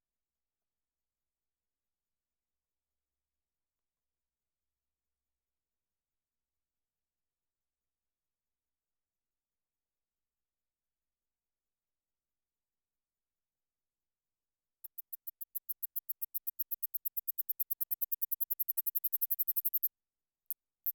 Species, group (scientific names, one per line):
Platystolus martinezii
Orthoptera